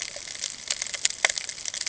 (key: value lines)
label: ambient
recorder: HydroMoth